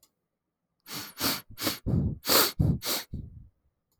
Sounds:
Sniff